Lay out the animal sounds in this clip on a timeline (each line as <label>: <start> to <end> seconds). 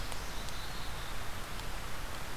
Black-capped Chickadee (Poecile atricapillus): 0.0 to 1.4 seconds